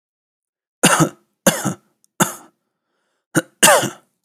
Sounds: Cough